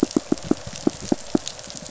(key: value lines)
label: biophony, pulse
recorder: SoundTrap 500